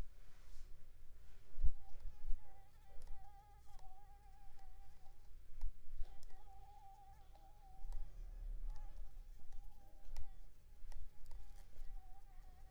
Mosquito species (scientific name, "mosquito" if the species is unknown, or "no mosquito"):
Anopheles arabiensis